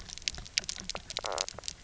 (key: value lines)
label: biophony, knock croak
recorder: SoundTrap 300